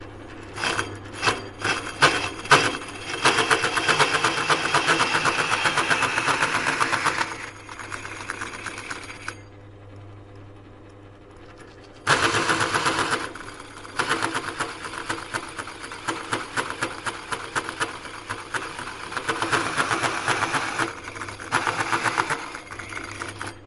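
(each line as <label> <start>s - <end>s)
A drill press operates intermittently. 0.0s - 9.7s
A drill press operates intermittently. 12.0s - 23.7s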